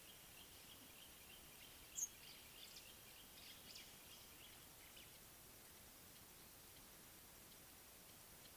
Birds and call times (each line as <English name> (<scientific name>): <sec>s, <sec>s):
Speckle-fronted Weaver (Sporopipes frontalis): 2.0s